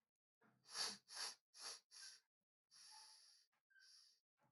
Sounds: Sniff